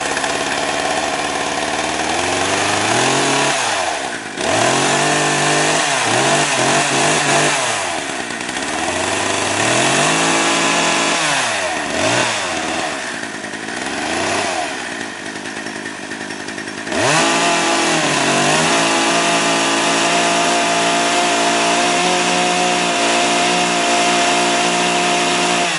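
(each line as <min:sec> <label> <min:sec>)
0:00.0 A chainsaw runs loudly, revving up and down in an irregular pattern. 0:16.9
0:16.9 A chainsaw runs loudly at full speed in a steady pattern. 0:25.8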